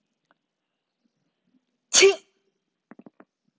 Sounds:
Sneeze